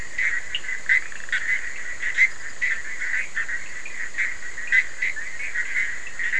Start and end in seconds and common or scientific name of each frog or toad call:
none